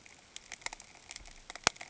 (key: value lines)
label: ambient
recorder: HydroMoth